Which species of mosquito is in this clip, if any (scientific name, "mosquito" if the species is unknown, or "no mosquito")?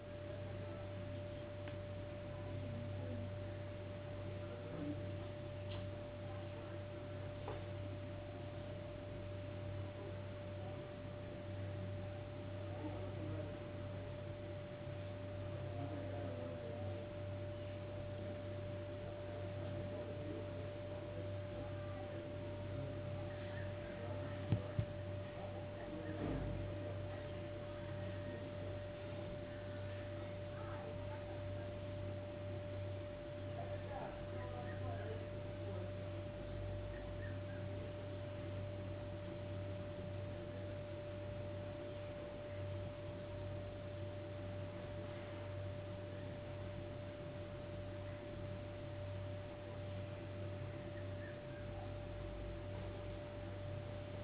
no mosquito